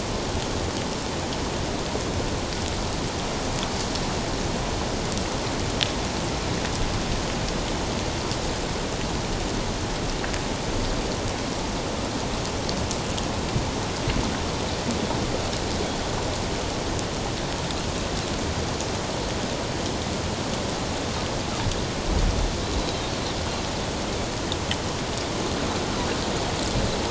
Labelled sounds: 22.8	23.1	Pacific white-sided dolphin, 3.8 to 4.0 kHz

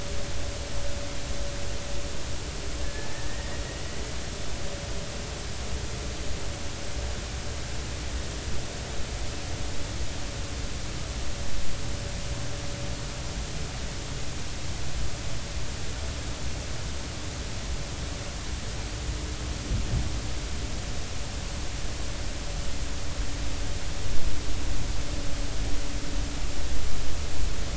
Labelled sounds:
2.8	3.1	killer whale, Bigg's (transient), 1.6 to 1.8 kHz

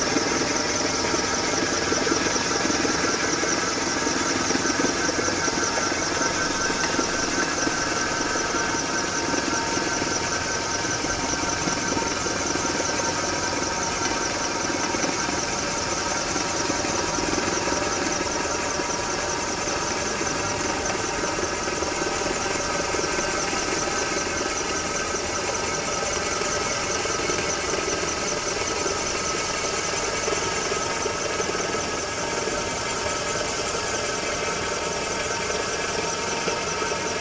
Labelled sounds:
6.7	7.0	vessel noise, 2.6 to 2.9 kHz

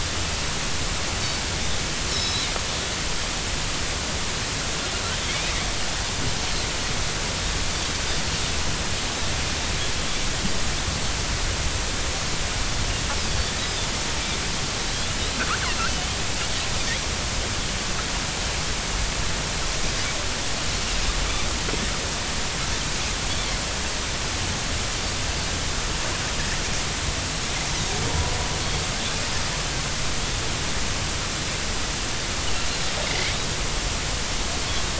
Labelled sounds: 2.1	2.5	Pacific white-sided dolphin, 3.6 to 5.6 kHz
5.3	5.5	Pacific white-sided dolphin, 2.1 to 2.6 kHz
13.6	13.9	Pacific white-sided dolphin, 3.4 to 3.9 kHz
15.9	16.2	Pacific white-sided dolphin, 2.9 to 3.2 kHz
33.1	33.4	Pacific white-sided dolphin, 2.0 to 2.3 kHz

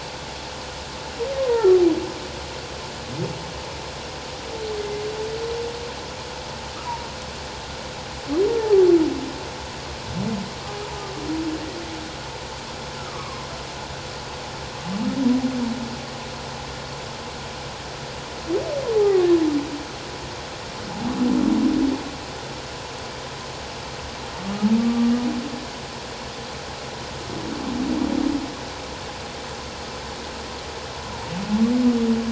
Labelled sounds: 1.4	1.7	humpback whale, 0.78 to 1.1 kHz
4.8	5.0	humpback whale, 2.0 to 2.1 kHz
8.6	8.8	humpback whale, 0.78 to 0.91 kHz
13.0	13.5	humpback whale, 0.97 to 1.4 kHz
18.9	19.3	humpback whale, 0.78 to 1.3 kHz
24.8	25.1	humpback whale, 1.1 to 1.2 kHz

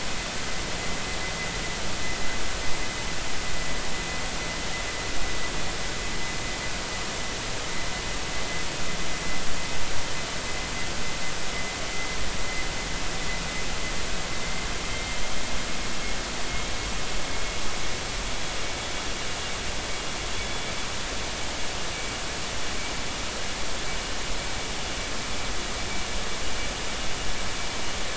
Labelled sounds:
14.9	15.2	vessel noise, 2.08 to 2.14 kHz
20.4	20.7	vessel noise, 3.4 to 3.5 kHz

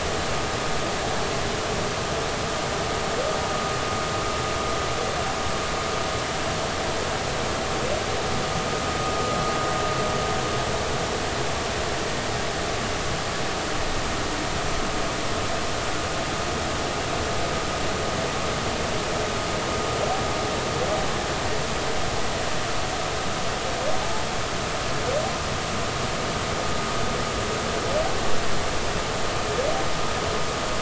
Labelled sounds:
24.0	24.3	humpback whale, 0.80 to 0.90 kHz

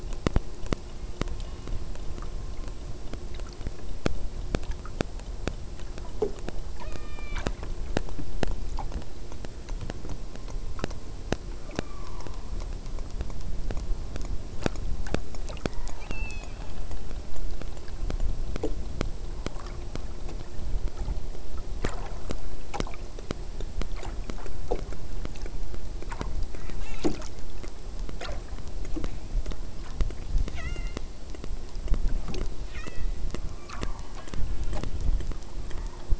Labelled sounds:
6.8	7.5	killer whale, southern Alaska resident, 0.36 to 5.3 kHz
11.7	12.5	killer whale, southern Alaska resident, 0.69 to 2.6 kHz
15.6	16.8	killer whale, southern Alaska resident, 0.68 to 8.0 kHz
26.5	27.0	killer whale, southern Alaska resident, 0.29 to 8.0 kHz
30.5	31.0	killer whale, southern Alaska resident, 0.57 to 8.0 kHz
32.6	33.1	killer whale, southern Alaska resident, 0.92 to 7.3 kHz
33.6	33.9	killer whale, southern Alaska resident, 0.50 to 2.5 kHz
35.6	36.1	killer whale, southern Alaska resident, 0.71 to 2.1 kHz

